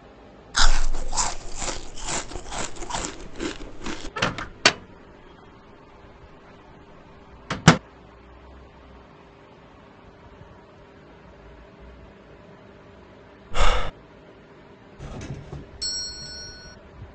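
At 0.54 seconds, there is chewing. Then, at 4.15 seconds, the sound of a microwave oven comes in. After that, at 13.51 seconds, someone sighs. Next, at 14.98 seconds, a doorbell can be heard. A quiet steady noise continues about 20 decibels below the sounds.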